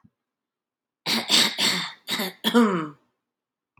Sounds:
Cough